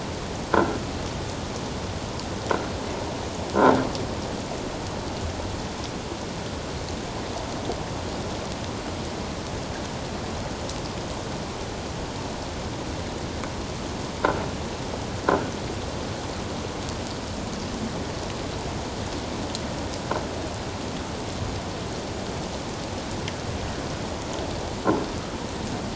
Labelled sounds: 0.5	0.8	croaking sound likely from a nearby submerged object, 1.3 to 1.7 kHz
15.3	15.5	croaking sound likely from a nearby submerged object, 1.3 to 1.6 kHz

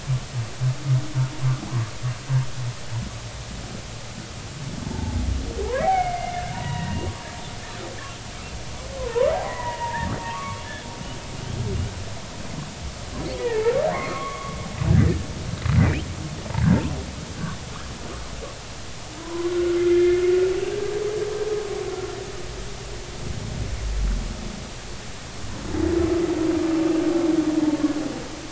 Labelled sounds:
4.8	7.0	humpback whale, 0.80 to 2.3 kHz
9.0	10.6	humpback whale, 0.86 to 2.2 kHz
13.4	14.6	humpback whale, 0.99 to 2.5 kHz
19.2	20.9	humpback whale, 0.93 to 2.2 kHz

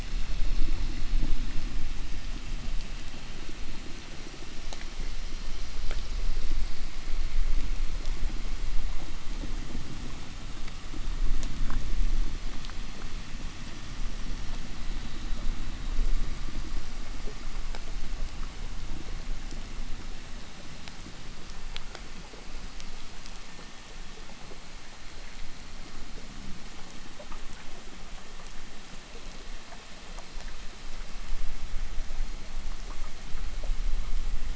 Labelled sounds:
6.1	10.6	vessel noise, 0.10 to 6.6 kHz

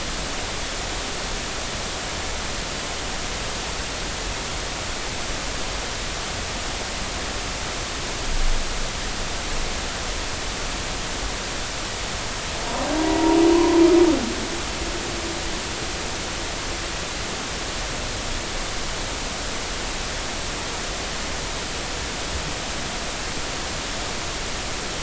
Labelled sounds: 13.0	13.8	humpback whale, 0.90 to 1.1 kHz

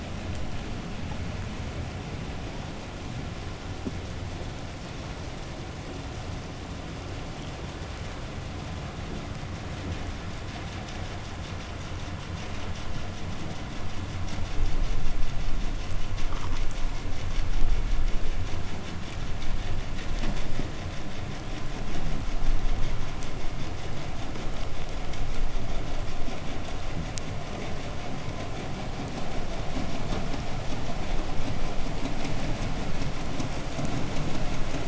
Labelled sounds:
8.3	15.6	vessel noise, 0 to 8.0 kHz
21.6	22.5	fish, 0 to 0.57 kHz

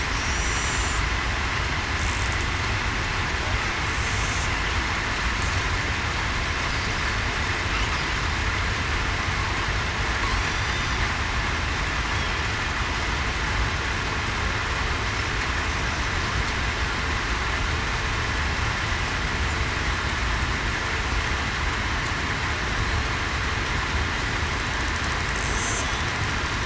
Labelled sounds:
0.3	0.8	killer whale, southern resident, 5.7 to 5.9 kHz
10.4	11.0	killer whale, southern resident, 5.7 to 8.0 kHz

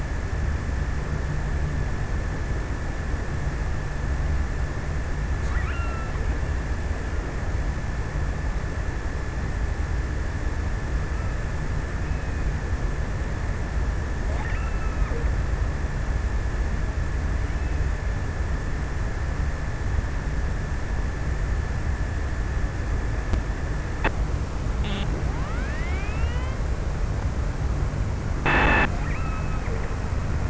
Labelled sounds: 5.2	6.7	killer whale, offshore, 1.0 to 3.1 kHz
14.0	15.9	killer whale, offshore, 0.80 to 2.9 kHz
29.1	30.4	killer whale, offshore, 1.0 to 3.1 kHz

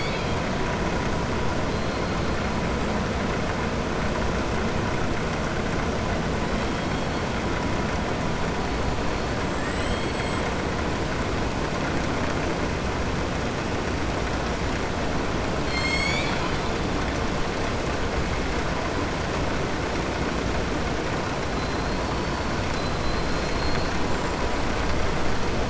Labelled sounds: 9.5	10.4	killer whale, southern resident, 1.7 to 5.0 kHz
15.6	16.8	killer whale, southern resident, 1.4 to 7.8 kHz

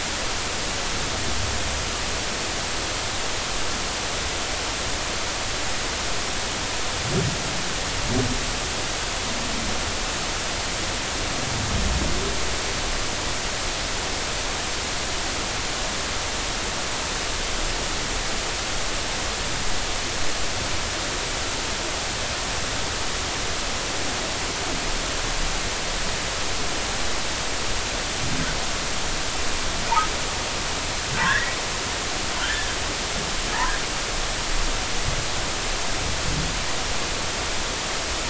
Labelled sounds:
31.2	31.6	humpback whale, 1.3 to 2.0 kHz
32.4	32.7	humpback whale, 1.3 to 1.9 kHz

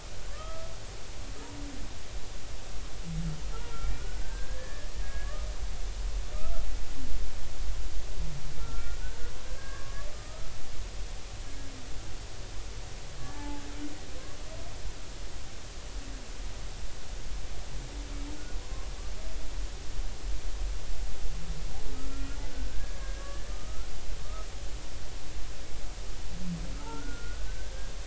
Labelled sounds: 0.3	0.7	humpback whale, 1.1 to 2.0 kHz
3.5	5.4	humpback whale, 1.3 to 1.9 kHz
8.6	9.2	humpback whale, 1.3 to 1.6 kHz
9.4	10.5	humpback whale, 1.1 to 1.7 kHz
13.2	13.6	humpback whale, 0.80 to 1.8 kHz
21.9	23.9	humpback whale, 1.2 to 1.7 kHz
24.2	24.5	humpback whale, 1.1 to 1.3 kHz
26.7	27.7	humpback whale, 1.2 to 1.7 kHz

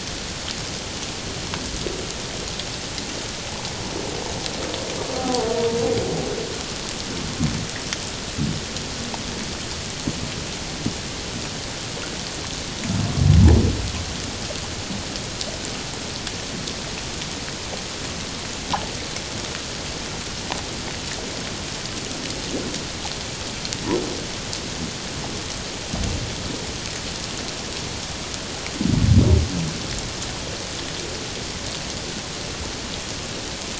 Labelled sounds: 5.1	5.5	humpback whale, 0.78 to 0.81 kHz

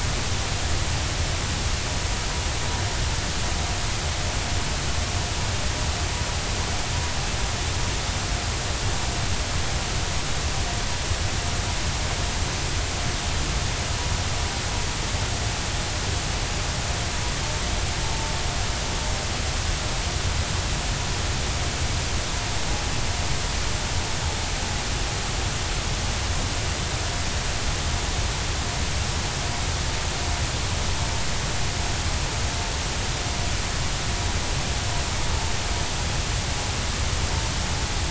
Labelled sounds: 18.0	18.3	vessel noise, 0.83 to 0.96 kHz

